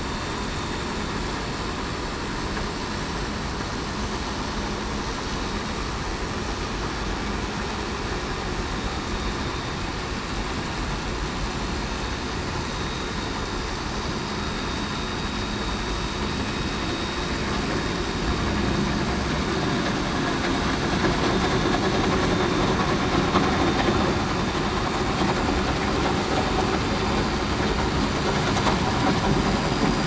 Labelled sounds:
12.7	13.1	vessel noise, 3.75 to 3.80 kHz
22.3	22.7	vessel noise, 3.6 to 3.7 kHz

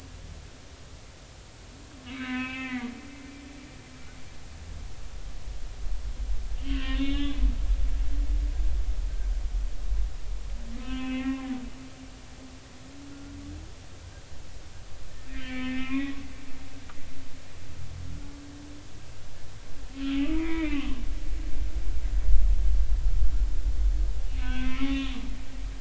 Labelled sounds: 2.1	2.9	humpback whale, 0.96 to 3.4 kHz
6.6	7.4	humpback whale, 0.99 to 3.8 kHz
8.0	8.3	humpback whale, 2.1 to 2.3 kHz
10.8	11.5	humpback whale, 0.80 to 3.1 kHz
15.3	16.3	humpback whale, 1.0 to 2.7 kHz
20.2	20.9	humpback whale, 0.93 to 3.7 kHz
24.3	25.2	humpback whale, 0.96 to 3.9 kHz

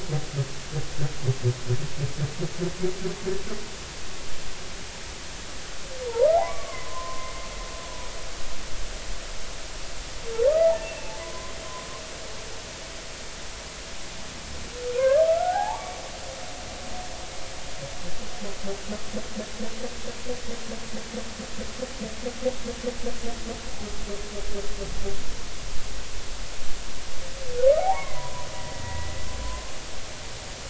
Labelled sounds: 6.0	7.5	humpback whale, 0.80 to 2.1 kHz
10.5	11.5	humpback whale, 0.96 to 2.8 kHz
15.0	15.9	humpback whale, 0.80 to 1.8 kHz
27.8	29.2	humpback whale, 0.80 to 2.3 kHz

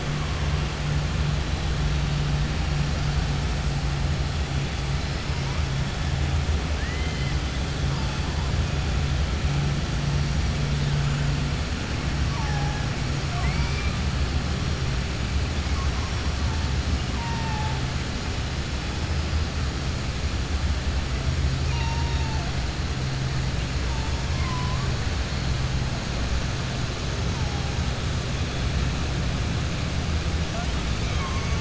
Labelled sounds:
6.7	7.4	killer whale, 1.6 to 3.2 kHz
13.2	13.9	killer whale, 0.69 to 2.5 kHz
21.6	22.4	killer whale, 0.68 to 6.5 kHz

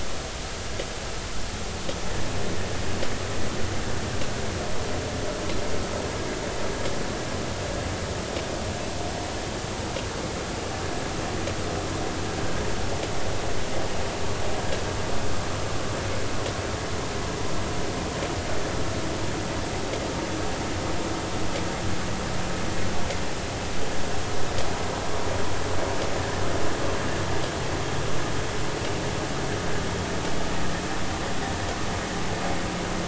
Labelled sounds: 26.2	26.4	vessel noise, 1.5 to 1.9 kHz

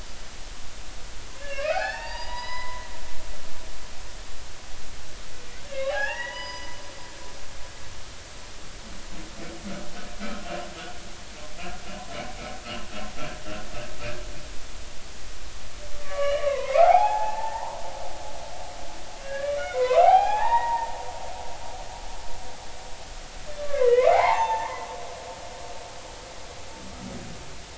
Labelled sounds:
1.4	2.9	humpback whale, 0.80 to 5.1 kHz
5.7	6.8	humpback whale, 0.80 to 5.9 kHz
16.0	17.8	humpback whale, 0.80 to 4.0 kHz
19.2	20.9	humpback whale, 0.80 to 3.8 kHz
23.6	24.9	humpback whale, 0.80 to 6.4 kHz

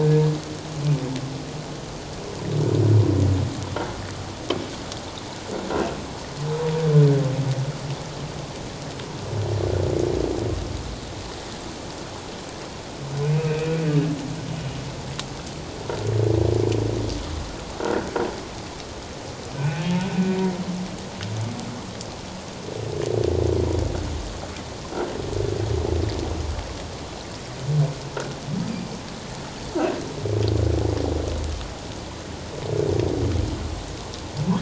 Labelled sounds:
13.2	13.8	humpback whale, 2.3 to 2.7 kHz
17.8	18.1	croaking sound likely from a nearby submerged object, 1.3 to 1.6 kHz
19.5	19.9	humpback whale, 1.4 to 1.6 kHz
28.7	28.9	humpback whale, 4.6 to 4.9 kHz

